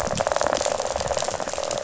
{"label": "biophony, rattle", "recorder": "SoundTrap 500"}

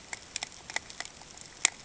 {"label": "ambient", "recorder": "HydroMoth"}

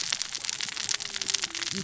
{"label": "biophony, cascading saw", "recorder": "SoundTrap 600 or HydroMoth"}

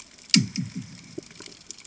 {"label": "anthrophony, bomb", "recorder": "HydroMoth"}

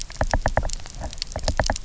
{"label": "biophony, knock", "recorder": "SoundTrap 300"}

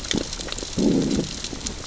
{"label": "biophony, growl", "recorder": "SoundTrap 600 or HydroMoth"}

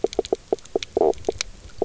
{"label": "biophony, knock croak", "recorder": "SoundTrap 300"}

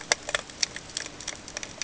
{"label": "ambient", "recorder": "HydroMoth"}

